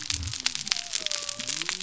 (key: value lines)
label: biophony
recorder: SoundTrap 300